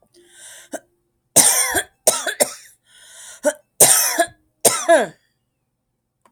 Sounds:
Cough